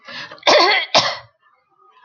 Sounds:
Throat clearing